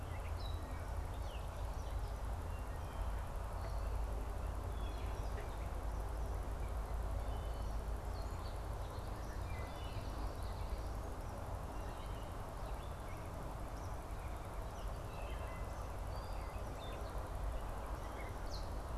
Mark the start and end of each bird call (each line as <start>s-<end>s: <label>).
0.0s-2.0s: Gray Catbird (Dumetella carolinensis)
2.4s-3.3s: Wood Thrush (Hylocichla mustelina)
4.6s-10.6s: Wood Thrush (Hylocichla mustelina)
13.5s-14.9s: Eastern Kingbird (Tyrannus tyrannus)
15.0s-15.9s: Wood Thrush (Hylocichla mustelina)
16.1s-18.9s: Gray Catbird (Dumetella carolinensis)